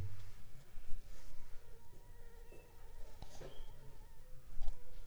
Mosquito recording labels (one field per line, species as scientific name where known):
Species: Anopheles funestus s.s.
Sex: female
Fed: unfed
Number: one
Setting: cup